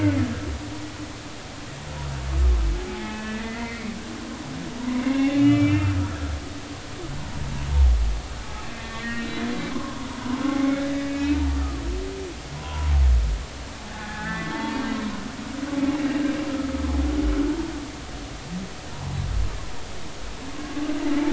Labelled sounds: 2.9	3.9	humpback whale, 0.80 to 2.7 kHz
5.0	6.3	humpback whale, 1.3 to 3.1 kHz
8.7	11.4	humpback whale, 0.80 to 4.0 kHz
12.6	12.9	humpback whale, 0.90 to 1.1 kHz
13.9	14.8	humpback whale, 0.80 to 2.0 kHz

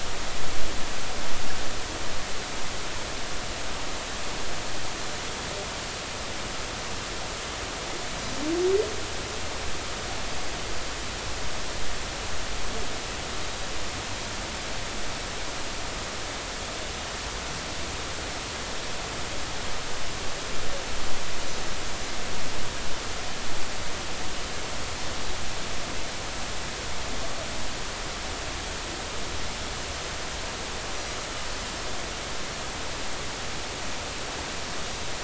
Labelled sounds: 10.3	10.6	Pacific white-sided dolphin, 4.7 to 4.9 kHz

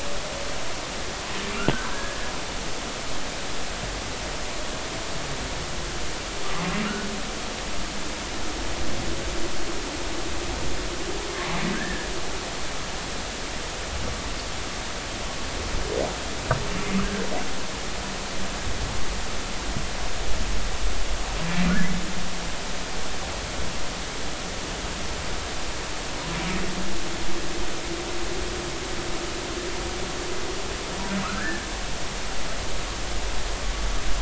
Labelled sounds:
1.6	2.2	humpback whale, 1.3 to 1.7 kHz
11.7	12.1	humpback whale, 1.5 to 1.9 kHz
31.2	31.7	humpback whale, 1.1 to 1.8 kHz

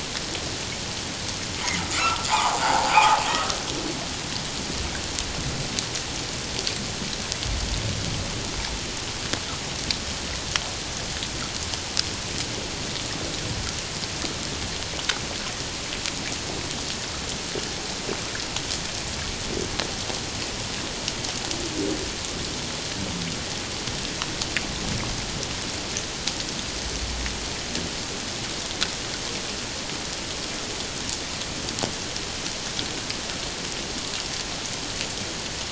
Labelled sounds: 1.6	3.2	humpback whale, 0.78 to 2.2 kHz

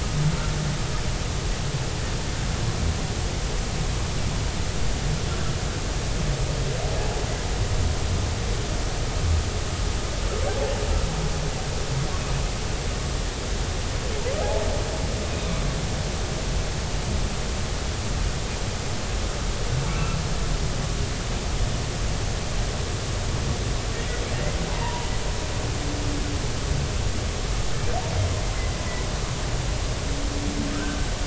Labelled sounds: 19.9	20.2	humpback whale, 1.3 to 1.4 kHz
24.3	25.1	humpback whale, 0.83 to 2.1 kHz
30.7	31.0	humpback whale, 1.2 to 1.6 kHz

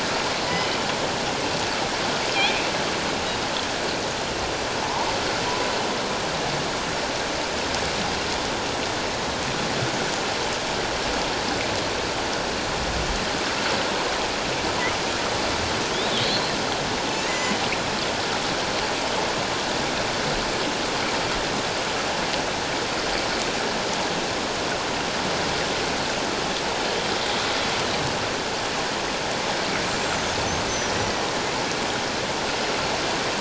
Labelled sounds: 2.4	2.7	killer whale, northern resident, 2.3 to 2.7 kHz
4.8	5.1	killer whale, northern resident, 0.78 to 1.1 kHz
16.1	16.5	killer whale, northern resident, 3.7 to 4.2 kHz
17.2	17.6	killer whale, northern resident, 1.8 to 7.2 kHz
29.9	30.9	killer whale, northern resident, 5.7 to 7.6 kHz

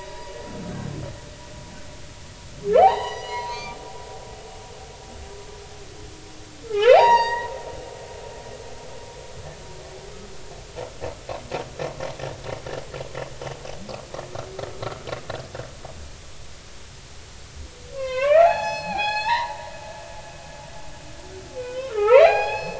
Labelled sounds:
0.7	0.9	humpback whale, 1.4 to 1.7 kHz
2.7	3.8	humpback whale, 0.80 to 7.0 kHz
6.7	7.5	humpback whale, 0.80 to 6.9 kHz
17.9	19.7	humpback whale, 0.80 to 7.7 kHz
21.6	22.7	humpback whale, 0.80 to 5.2 kHz

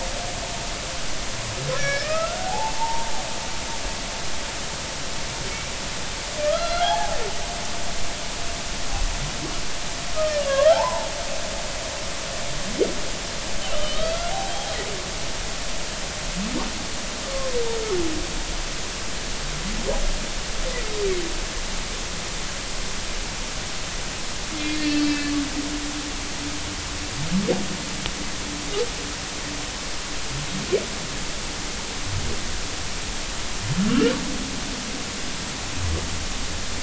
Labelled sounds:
1.8	3.1	humpback whale, 0.80 to 5.8 kHz
5.5	5.7	humpback whale, 2.1 to 2.4 kHz
6.5	7.2	humpback whale, 0.80 to 4.3 kHz
10.5	11.1	humpback whale, 0.80 to 1.9 kHz
13.6	14.7	humpback whale, 2.8 to 3.8 kHz
17.3	17.6	humpback whale, 0.96 to 1.2 kHz
24.8	25.3	humpback whale, 1.7 to 4.8 kHz
33.9	34.1	humpback whale, 2.7 to 3.1 kHz

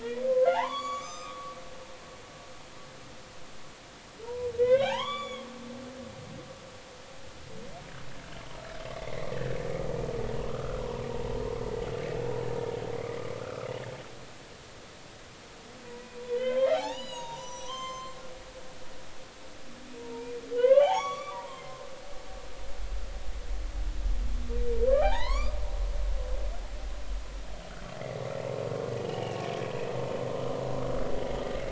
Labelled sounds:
0.0	1.6	humpback whale, 0.80 to 7.6 kHz
4.2	5.5	humpback whale, 0.80 to 7.1 kHz
8.9	9.3	humpback whale, 1.8 to 2.2 kHz
10.5	11.6	humpback whale, 0.90 to 1.5 kHz
13.4	13.7	humpback whale, 1.1 to 1.6 kHz
16.2	18.2	humpback whale, 0.80 to 8.0 kHz
20.0	21.9	humpback whale, 0.80 to 6.9 kHz
24.9	25.6	humpback whale, 0.80 to 6.0 kHz
29.0	29.4	humpback whale, 2.6 to 3.1 kHz

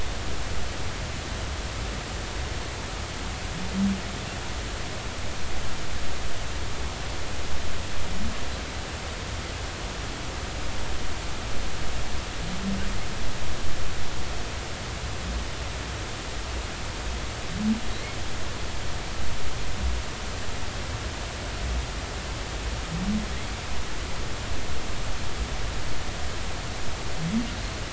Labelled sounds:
17.9	18.2	humpback whale, 3.8 to 4.4 kHz

